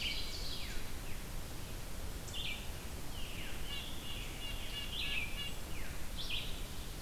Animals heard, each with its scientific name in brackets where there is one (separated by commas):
Veery (Catharus fuscescens), Red-breasted Nuthatch (Sitta canadensis), Red-eyed Vireo (Vireo olivaceus), Ovenbird (Seiurus aurocapilla)